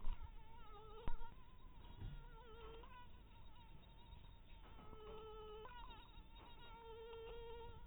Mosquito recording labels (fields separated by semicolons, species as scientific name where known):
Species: mosquito; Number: one; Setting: cup